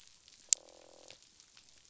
{"label": "biophony, croak", "recorder": "SoundTrap 500"}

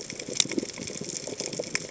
{"label": "biophony, chatter", "recorder": "HydroMoth"}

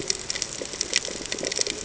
{"label": "ambient", "recorder": "HydroMoth"}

